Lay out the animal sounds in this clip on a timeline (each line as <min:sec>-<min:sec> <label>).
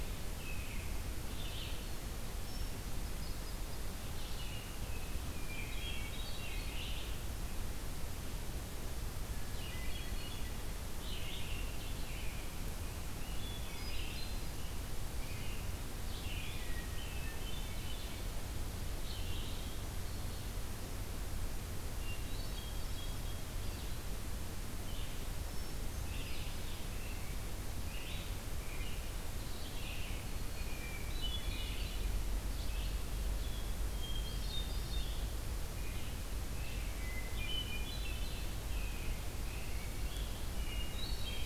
0:00.0-0:01.9 American Robin (Turdus migratorius)
0:02.3-0:04.0 Hermit Thrush (Catharus guttatus)
0:04.1-0:06.8 American Robin (Turdus migratorius)
0:05.2-0:06.9 Hermit Thrush (Catharus guttatus)
0:06.7-0:19.7 Blue-headed Vireo (Vireo solitarius)
0:09.3-0:10.4 Hermit Thrush (Catharus guttatus)
0:11.1-0:12.5 American Robin (Turdus migratorius)
0:13.2-0:14.6 Hermit Thrush (Catharus guttatus)
0:15.1-0:16.7 American Robin (Turdus migratorius)
0:16.5-0:18.2 Hermit Thrush (Catharus guttatus)
0:19.6-0:20.9 Black-throated Green Warbler (Setophaga virens)
0:21.9-0:23.5 Hermit Thrush (Catharus guttatus)
0:24.9-0:41.5 Blue-headed Vireo (Vireo solitarius)
0:25.2-0:26.7 Hermit Thrush (Catharus guttatus)
0:25.9-0:29.1 American Robin (Turdus migratorius)
0:29.5-0:30.9 Black-throated Green Warbler (Setophaga virens)
0:29.7-0:31.9 American Robin (Turdus migratorius)
0:30.6-0:32.2 Hermit Thrush (Catharus guttatus)
0:33.8-0:35.2 Hermit Thrush (Catharus guttatus)
0:35.7-0:37.1 American Robin (Turdus migratorius)
0:36.9-0:38.6 Hermit Thrush (Catharus guttatus)
0:38.7-0:41.5 American Robin (Turdus migratorius)
0:40.5-0:41.5 Hermit Thrush (Catharus guttatus)